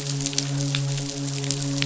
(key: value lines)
label: biophony, midshipman
recorder: SoundTrap 500